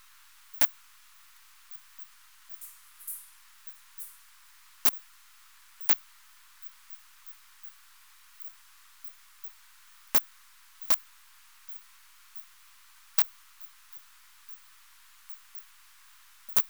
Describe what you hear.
Poecilimon zimmeri, an orthopteran